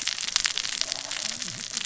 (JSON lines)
{"label": "biophony, cascading saw", "recorder": "SoundTrap 600 or HydroMoth"}